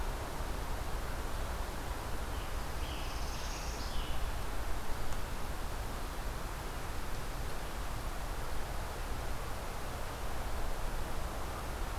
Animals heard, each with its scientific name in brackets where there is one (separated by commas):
Scarlet Tanager (Piranga olivacea), Northern Parula (Setophaga americana)